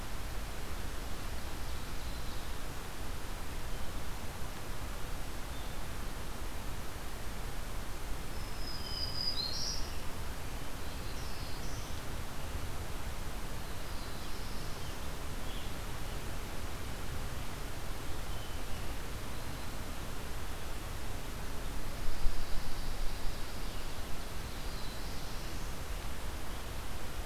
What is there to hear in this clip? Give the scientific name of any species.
Seiurus aurocapilla, Setophaga virens, Setophaga caerulescens, Vireo olivaceus, Setophaga pinus